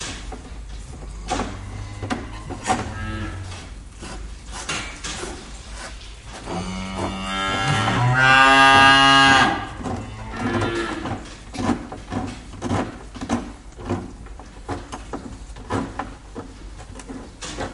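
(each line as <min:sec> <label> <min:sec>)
0:00.0 Metallic noise repeating. 0:17.7
0:02.8 A cow is mooing in the distance. 0:03.6
0:06.7 A cow moos loudly nearby. 0:09.5
0:10.5 A cow moos in the distance. 0:11.4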